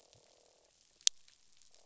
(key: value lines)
label: biophony, croak
recorder: SoundTrap 500